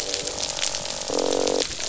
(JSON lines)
{"label": "biophony, croak", "recorder": "SoundTrap 500"}